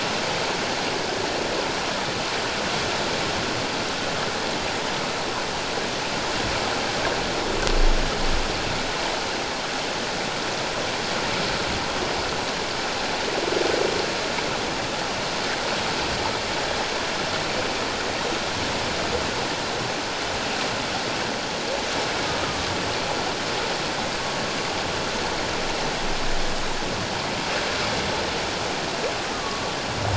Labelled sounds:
22.4	22.7	humpback whale, 1.1 to 1.4 kHz
29.3	29.6	humpback whale, 1.1 to 1.3 kHz

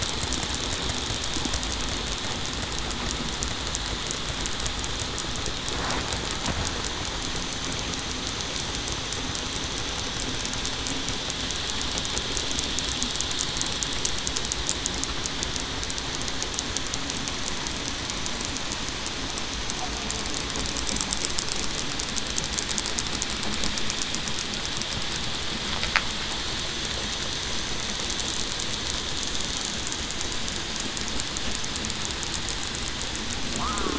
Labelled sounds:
33.6	33.9	killer whale, southern resident, 0.96 to 1.3 kHz

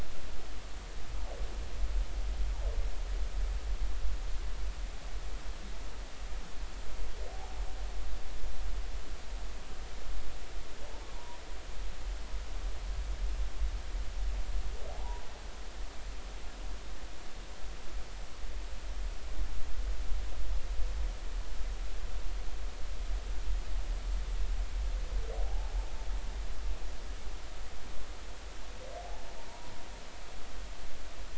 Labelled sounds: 11.1	11.4	humpback whale, 0.86 to 1.1 kHz
14.9	15.2	humpback whale, 0.80 to 1.0 kHz
25.4	25.7	humpback whale, 0.80 to 0.93 kHz

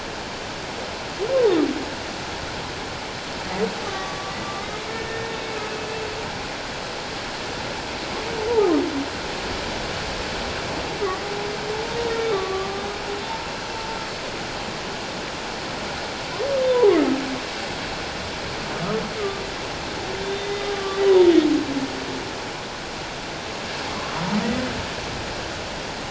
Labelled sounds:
3.8	5.3	humpback whale, 1.1 to 6.2 kHz
11.7	12.0	humpback whale, 0.81 to 0.97 kHz
12.3	13.9	humpback whale, 0.84 to 6.1 kHz
20.2	21.3	humpback whale, 0.88 to 3.8 kHz

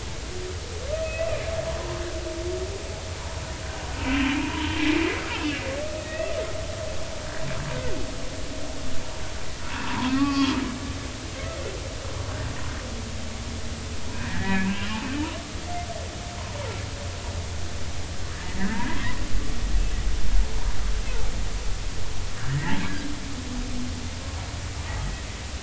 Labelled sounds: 1.0	1.3	humpback whale, 2.5 to 2.7 kHz
4.0	4.7	humpback whale, 0.86 to 3.2 kHz
5.3	6.3	humpback whale, 1.8 to 2.9 kHz
9.8	10.6	humpback whale, 0.86 to 3.4 kHz
14.1	14.9	humpback whale, 1.5 to 2.7 kHz
18.6	18.9	humpback whale, 1.5 to 2.1 kHz
23.5	23.8	humpback whale, 1.5 to 2.1 kHz

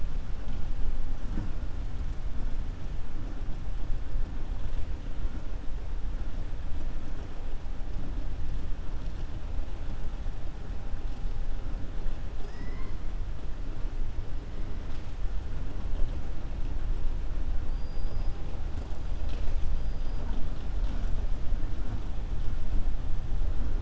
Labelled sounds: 12.4	13.0	killer whale, 0.41 to 3.1 kHz
17.6	18.3	killer whale, 4.6 to 5.6 kHz

